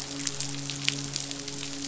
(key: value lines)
label: biophony, midshipman
recorder: SoundTrap 500